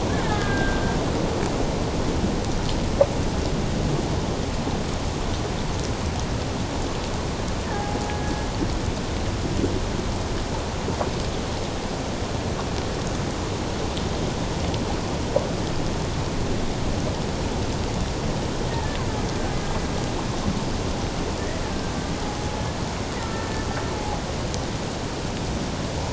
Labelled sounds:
0.2	1.0	killer whale, Bigg's (transient), 1.2 to 2.2 kHz
7.6	8.0	killer whale, Bigg's (transient), 0.78 to 1.8 kHz
23.2	23.5	killer whale, Bigg's (transient), 1.3 to 1.4 kHz
24.0	24.2	killer whale, Bigg's (transient), 0.78 to 0.94 kHz

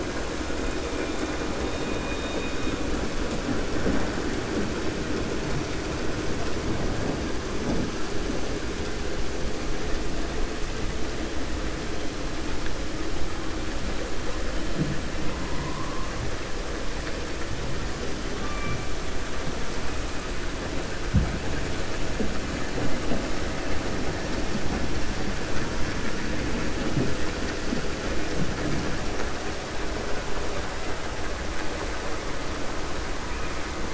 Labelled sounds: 1.6	2.7	killer whale, 1.7 to 3.8 kHz

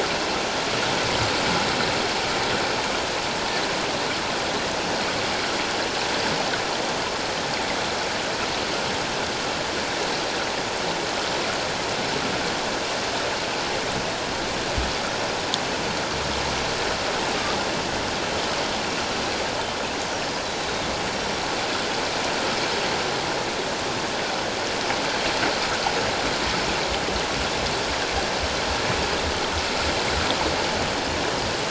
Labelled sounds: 20.4	21.4	killer whale, 3.8 to 5.8 kHz

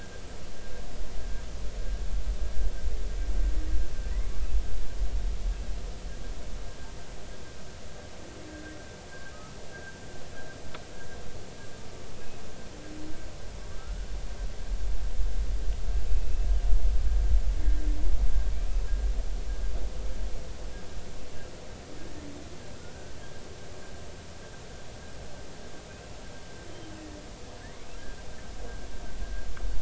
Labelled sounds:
8.5	9.6	humpback whale, 1.2 to 1.7 kHz
10.7	11.0	humpback whale, 1.5 to 1.7 kHz
13.8	14.1	humpback whale, 1.2 to 1.5 kHz
16.1	16.5	humpback whale, 2.5 to 2.7 kHz

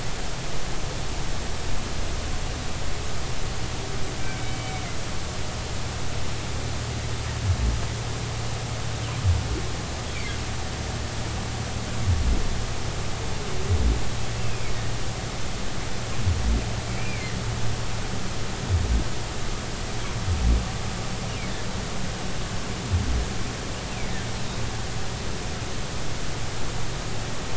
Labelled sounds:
4.2	4.8	humpback whale, 2.2 to 3.1 kHz
14.4	14.7	humpback whale, 2.3 to 2.8 kHz
16.9	17.4	humpback whale, 1.8 to 2.5 kHz

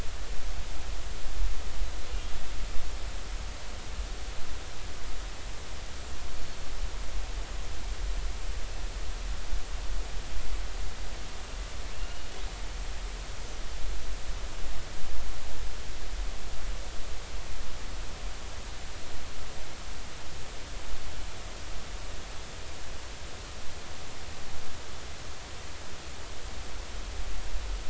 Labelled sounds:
11.9	12.3	killer whale, northern resident, A clan, AB subclan, call N07iii, 2.6 to 2.9 kHz

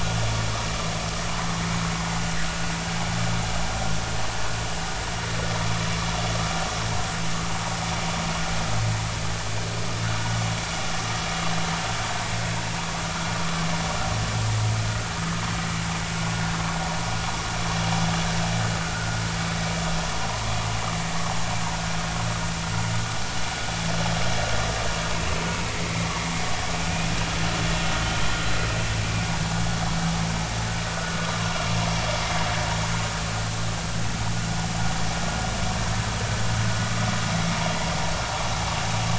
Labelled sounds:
18.9	19.2	vessel noise, 1.3 to 1.5 kHz

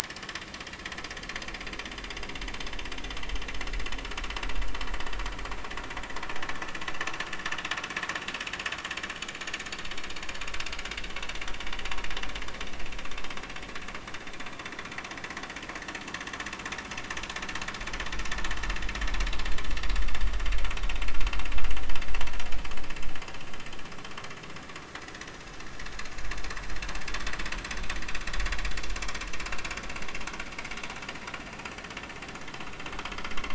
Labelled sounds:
1.0	1.4	vessel noise, 1.7 to 1.8 kHz

